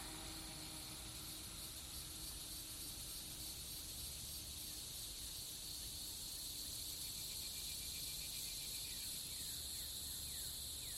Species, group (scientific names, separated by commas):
Neocicada hieroglyphica, Cicadidae